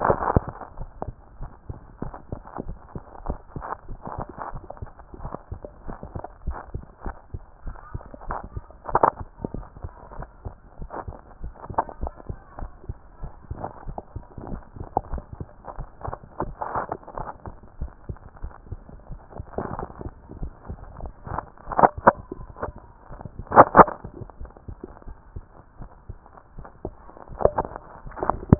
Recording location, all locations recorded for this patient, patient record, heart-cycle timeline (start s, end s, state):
tricuspid valve (TV)
aortic valve (AV)+aortic valve (AV)+pulmonary valve (PV)+tricuspid valve (TV)+mitral valve (MV)
#Age: Child
#Sex: Female
#Height: 137.0 cm
#Weight: 32.1 kg
#Pregnancy status: False
#Murmur: Absent
#Murmur locations: nan
#Most audible location: nan
#Systolic murmur timing: nan
#Systolic murmur shape: nan
#Systolic murmur grading: nan
#Systolic murmur pitch: nan
#Systolic murmur quality: nan
#Diastolic murmur timing: nan
#Diastolic murmur shape: nan
#Diastolic murmur grading: nan
#Diastolic murmur pitch: nan
#Diastolic murmur quality: nan
#Outcome: Abnormal
#Campaign: 2014 screening campaign
0.00	0.06	diastole
0.06	0.24	S1
0.24	0.46	systole
0.46	0.56	S2
0.56	0.78	diastole
0.78	0.90	S1
0.90	1.02	systole
1.02	1.16	S2
1.16	1.38	diastole
1.38	1.50	S1
1.50	1.68	systole
1.68	1.78	S2
1.78	2.00	diastole
2.00	2.14	S1
2.14	2.30	systole
2.30	2.40	S2
2.40	2.64	diastole
2.64	2.78	S1
2.78	2.94	systole
2.94	3.02	S2
3.02	3.24	diastole
3.24	3.38	S1
3.38	3.52	systole
3.52	3.64	S2
3.64	3.88	diastole
3.88	4.00	S1
4.00	4.16	systole
4.16	4.26	S2
4.26	4.52	diastole
4.52	4.64	S1
4.64	4.80	systole
4.80	4.90	S2
4.90	5.18	diastole
5.18	5.32	S1
5.32	5.50	systole
5.50	5.60	S2
5.60	5.86	diastole
5.86	5.98	S1
5.98	6.14	systole
6.14	6.24	S2
6.24	6.46	diastole
6.46	6.58	S1
6.58	6.72	systole
6.72	6.84	S2
6.84	7.06	diastole
7.06	7.16	S1
7.16	7.30	systole
7.30	7.42	S2
7.42	7.66	diastole
7.66	7.80	S1
7.80	7.94	systole
7.94	8.04	S2
8.04	8.26	diastole
8.26	8.40	S1
8.40	8.52	systole
8.52	8.66	S2
8.66	8.90	diastole
8.90	9.02	S1
9.02	9.20	systole
9.20	9.30	S2
9.30	9.52	diastole
9.52	9.66	S1
9.66	9.80	systole
9.80	9.94	S2
9.94	10.16	diastole
10.16	10.28	S1
10.28	10.44	systole
10.44	10.56	S2
10.56	10.80	diastole
10.80	10.90	S1
10.90	11.06	systole
11.06	11.16	S2
11.16	11.42	diastole
11.42	11.54	S1
11.54	11.68	systole
11.68	11.76	S2
11.76	11.98	diastole
11.98	12.12	S1
12.12	12.28	systole
12.28	12.38	S2
12.38	12.60	diastole
12.60	12.72	S1
12.72	12.88	systole
12.88	12.98	S2
12.98	13.22	diastole
13.22	13.32	S1
13.32	13.50	systole
13.50	13.66	S2
13.66	13.86	diastole
13.86	13.98	S1
13.98	14.12	systole
14.12	14.24	S2
14.24	14.46	diastole
14.46	14.62	S1
14.62	14.76	systole
14.76	14.88	S2
14.88	15.08	diastole
15.08	15.24	S1
15.24	15.38	systole
15.38	15.50	S2
15.50	15.76	diastole
15.76	15.88	S1
15.88	16.04	systole
16.04	16.18	S2
16.18	16.42	diastole
16.42	16.56	S1
16.56	16.74	systole
16.74	16.88	S2
16.88	17.16	diastole
17.16	17.28	S1
17.28	17.46	systole
17.46	17.56	S2
17.56	17.78	diastole
17.78	17.92	S1
17.92	18.08	systole
18.08	18.18	S2
18.18	18.40	diastole
18.40	18.52	S1
18.52	18.68	systole
18.68	18.82	S2
18.82	19.10	diastole
19.10	19.20	S1
19.20	19.36	systole
19.36	19.46	S2
19.46	19.72	diastole
19.72	19.88	S1
19.88	20.04	systole
20.04	20.16	S2
20.16	20.40	diastole
20.40	20.54	S1
20.54	20.68	systole
20.68	20.80	S2
20.80	21.00	diastole
21.00	21.12	S1
21.12	21.30	systole
21.30	21.44	S2
21.44	21.72	diastole
21.72	21.90	S1
21.90	22.04	systole
22.04	22.16	S2
22.16	22.36	diastole
22.36	22.50	S1
22.50	22.64	systole
22.64	22.74	S2
22.74	23.00	diastole
23.00	23.10	S1
23.10	23.24	systole
23.24	23.32	S2
23.32	23.52	diastole
23.52	23.68	S1
23.68	23.76	systole
23.76	23.90	S2
23.90	24.16	diastole
24.16	24.28	S1
24.28	24.42	systole
24.42	24.50	S2
24.50	24.68	diastole
24.68	24.78	S1
24.78	24.84	systole
24.84	24.88	S2
24.88	25.08	diastole
25.08	25.18	S1
25.18	25.36	systole
25.36	25.46	S2
25.46	25.78	diastole
25.78	25.90	S1
25.90	26.10	systole
26.10	26.24	S2
26.24	26.56	diastole
26.56	26.68	S1
26.68	26.84	systole
26.84	26.98	S2
26.98	27.30	diastole
27.30	27.42	S1
27.42	27.58	systole
27.58	27.74	S2
27.74	28.04	diastole
28.04	28.20	S1
28.20	28.46	systole
28.46	28.59	S2